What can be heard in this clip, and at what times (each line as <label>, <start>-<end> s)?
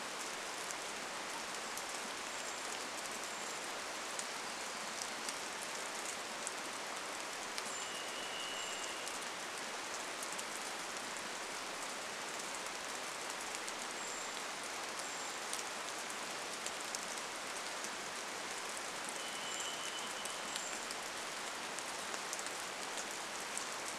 rain, 0-24 s
Brown Creeper call, 2-4 s
Hermit Warbler song, 4-6 s
Brown Creeper call, 6-10 s
Varied Thrush song, 6-10 s
Brown Creeper call, 14-16 s
Brown Creeper call, 18-22 s
Varied Thrush song, 18-22 s